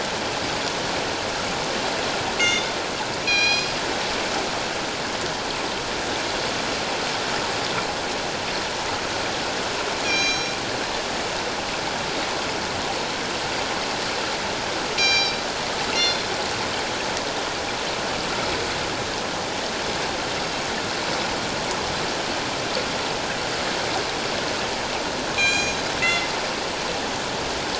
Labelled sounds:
2.4	2.7	killer whale, northern resident, G clan, 2.0 to 6.5 kHz
3.2	3.7	killer whale, northern resident, G clan, 1.6 to 7.4 kHz
10.0	10.5	killer whale, northern resident, G clan, 2.3 to 6.4 kHz
15.0	16.3	killer whale, northern resident, G clan, 2.1 to 7.2 kHz
25.3	26.3	killer whale, northern resident, G clan, 2.0 to 7.3 kHz

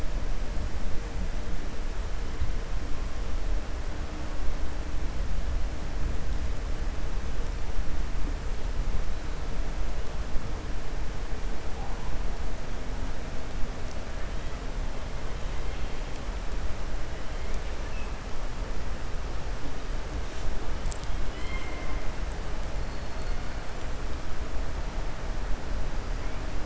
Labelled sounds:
21.2	22.0	killer whale, 1.0 to 5.0 kHz

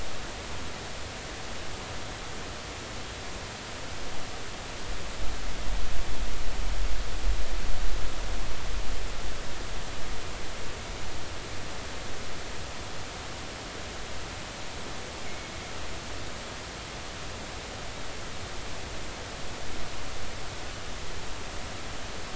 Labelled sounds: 15.2	15.5	killer whale, offshore, 2.1 to 2.4 kHz

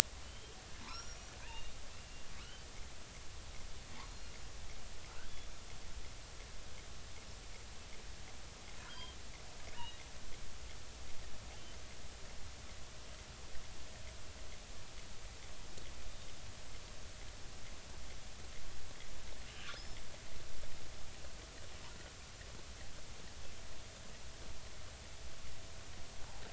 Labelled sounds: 0.2	0.5	killer whale, offshore, 2.9 to 3.3 kHz
0.8	1.7	killer whale, offshore, 0.86 to 5.9 kHz
2.4	2.7	killer whale, offshore, 1.1 to 3.2 kHz
5.2	5.5	killer whale, offshore, 3.1 to 3.5 kHz
8.8	10.0	killer whale, offshore, 1.3 to 3.4 kHz
16.0	16.3	killer whale, offshore, 3.6 to 3.7 kHz

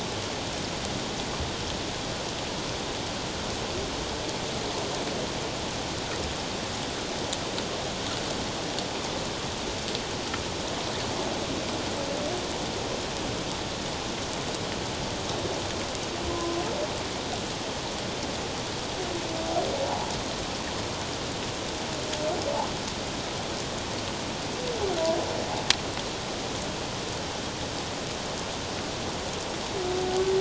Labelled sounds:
16.3	16.6	humpback whale, 0.97 to 1.1 kHz

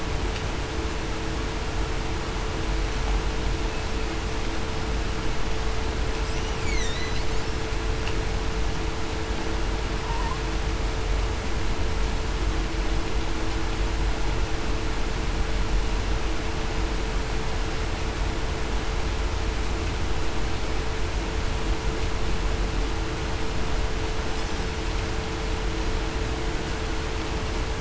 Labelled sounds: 6.7	7.2	killer whale, Bigg's (transient), 3.6 to 4.5 kHz

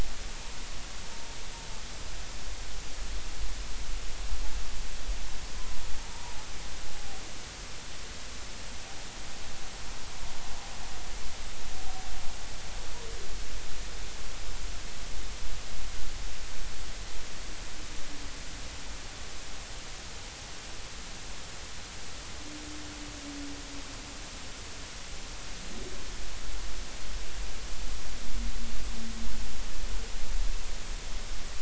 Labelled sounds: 6.0	6.4	humpback whale, 0.80 to 0.99 kHz

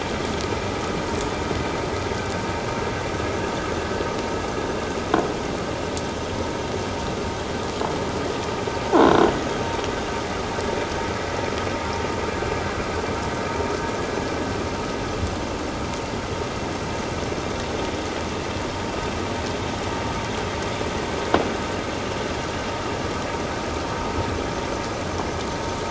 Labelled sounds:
8.9	9.3	croaking sound likely from a nearby submerged object, 1.3 to 1.6 kHz

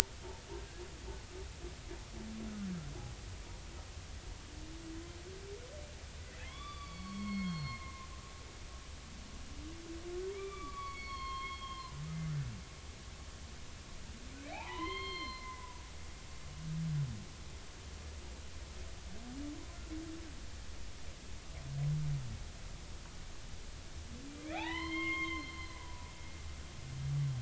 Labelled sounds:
6.2	8.1	humpback whale, 0.96 to 4.8 kHz
10.3	12.0	humpback whale, 0.93 to 4.6 kHz
14.5	15.8	humpback whale, 0.80 to 4.3 kHz
24.3	26.2	humpback whale, 0.80 to 7.5 kHz

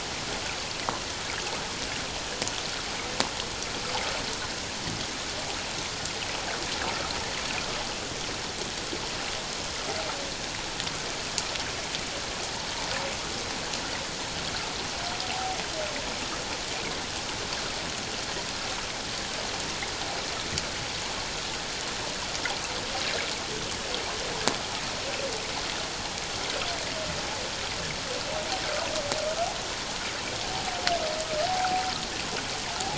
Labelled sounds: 15.3	15.6	humpback whale, 0.78 to 0.91 kHz
31.4	31.8	humpback whale, 0.78 to 0.84 kHz

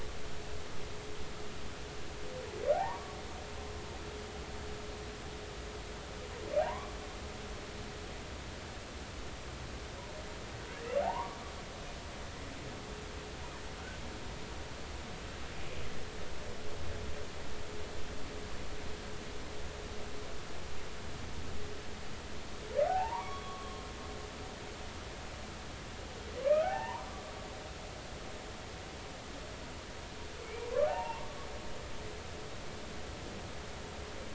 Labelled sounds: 2.7	3.2	humpback whale, 0.80 to 1.2 kHz
6.6	6.9	humpback whale, 0.80 to 1.2 kHz
11.0	11.4	humpback whale, 0.80 to 1.2 kHz
22.9	23.8	humpback whale, 0.80 to 3.4 kHz
26.6	27.1	humpback whale, 0.80 to 2.9 kHz
30.4	31.3	humpback whale, 0.80 to 2.8 kHz

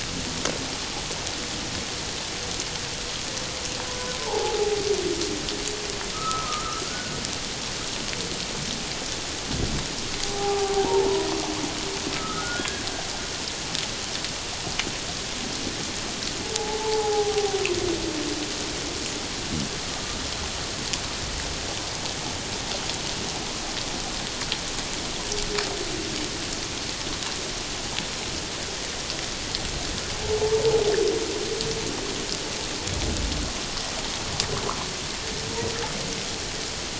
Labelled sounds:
4.1	4.8	humpback whale, 0.78 to 1.1 kHz
6.1	7.2	humpback whale, 1.1 to 1.5 kHz
10.2	11.3	humpback whale, 0.78 to 1.2 kHz
12.1	12.8	humpback whale, 1.2 to 1.7 kHz
16.5	17.6	humpback whale, 0.78 to 1.1 kHz

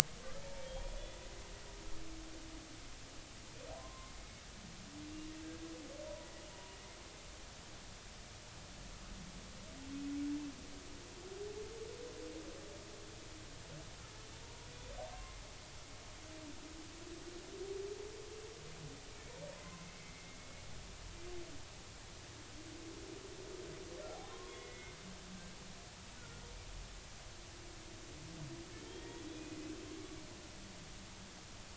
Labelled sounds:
0.4	1.2	humpback whale, 0.86 to 3.5 kHz
3.7	4.1	humpback whale, 0.93 to 1.1 kHz
6.0	6.8	humpback whale, 0.90 to 1.0 kHz
14.4	14.7	humpback whale, 0.90 to 1.1 kHz
19.8	20.1	humpback whale, 2.0 to 2.3 kHz
21.0	21.4	humpback whale, 2.0 to 2.1 kHz
24.3	25.0	humpback whale, 0.99 to 2.2 kHz
26.2	26.5	humpback whale, 1.3 to 1.5 kHz
28.8	29.4	humpback whale, 3.1 to 3.5 kHz

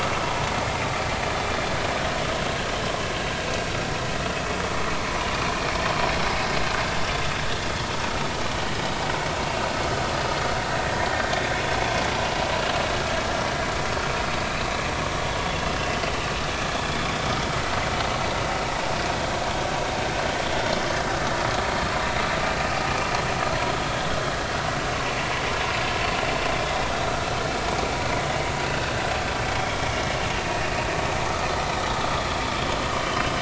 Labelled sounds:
29.6	29.9	vessel noise, 3.1 to 3.4 kHz
30.4	30.7	vessel noise, 2.4 to 2.6 kHz
33.0	33.4	vessel noise, 2.9 to 3.2 kHz

